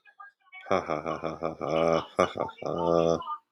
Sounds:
Laughter